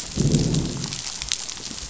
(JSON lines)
{"label": "biophony, growl", "recorder": "SoundTrap 500"}